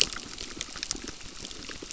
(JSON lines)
{"label": "biophony, crackle", "recorder": "SoundTrap 600"}